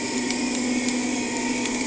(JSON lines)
{"label": "anthrophony, boat engine", "recorder": "HydroMoth"}